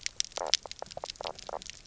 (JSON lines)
{"label": "biophony, knock croak", "recorder": "SoundTrap 300"}